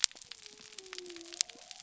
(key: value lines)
label: biophony
recorder: SoundTrap 300